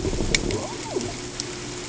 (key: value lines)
label: ambient
recorder: HydroMoth